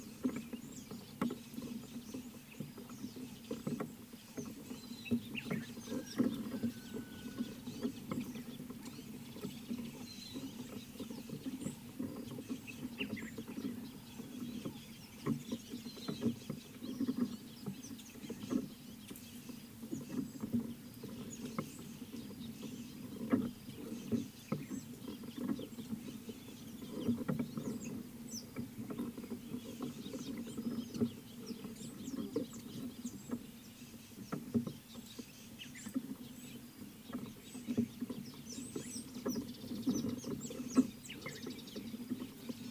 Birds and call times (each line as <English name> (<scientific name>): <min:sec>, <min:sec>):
Speckled Mousebird (Colius striatus): 0:28.4, 0:40.5
Red-cheeked Cordonbleu (Uraeginthus bengalus): 0:38.7